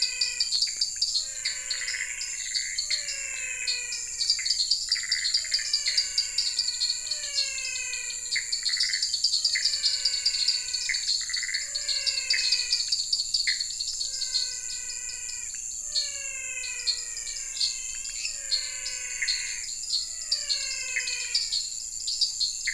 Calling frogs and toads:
dwarf tree frog (Dendropsophus nanus), menwig frog (Physalaemus albonotatus), Pithecopus azureus, lesser tree frog (Dendropsophus minutus)

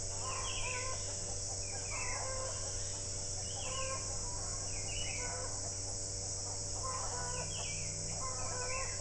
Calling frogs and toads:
none

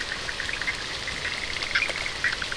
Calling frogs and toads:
Bischoff's tree frog (Boana bischoffi)

